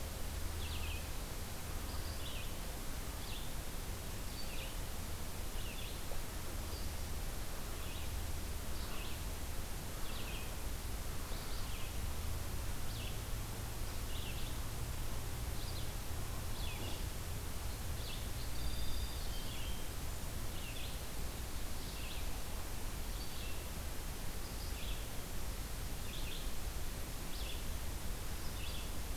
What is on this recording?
Red-eyed Vireo, Song Sparrow